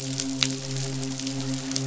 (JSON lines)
{"label": "biophony, midshipman", "recorder": "SoundTrap 500"}